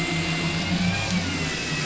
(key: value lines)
label: anthrophony, boat engine
recorder: SoundTrap 500